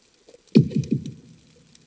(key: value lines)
label: anthrophony, bomb
recorder: HydroMoth